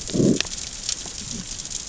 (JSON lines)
{"label": "biophony, growl", "recorder": "SoundTrap 600 or HydroMoth"}